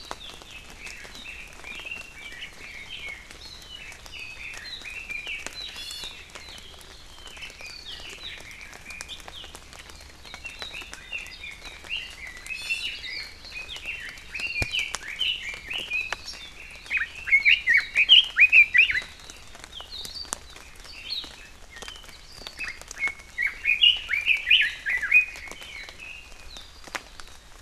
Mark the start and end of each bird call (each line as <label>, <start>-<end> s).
Red-billed Leiothrix (Leiothrix lutea), 0.4-3.3 s
Red-billed Leiothrix (Leiothrix lutea), 3.6-5.5 s
Hawaii Amakihi (Chlorodrepanis virens), 5.7-6.2 s
Red-billed Leiothrix (Leiothrix lutea), 7.1-9.3 s
Red-billed Leiothrix (Leiothrix lutea), 10.2-16.3 s
Hawaii Amakihi (Chlorodrepanis virens), 12.5-13.0 s
Hawaii Amakihi (Chlorodrepanis virens), 16.2-16.4 s
Red-billed Leiothrix (Leiothrix lutea), 16.9-19.1 s
Hawaii Amakihi (Chlorodrepanis virens), 21.0-21.3 s
Red-billed Leiothrix (Leiothrix lutea), 22.6-25.4 s